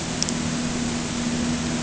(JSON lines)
{"label": "anthrophony, boat engine", "recorder": "HydroMoth"}